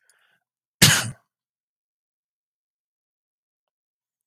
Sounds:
Sneeze